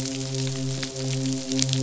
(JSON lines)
{"label": "biophony, midshipman", "recorder": "SoundTrap 500"}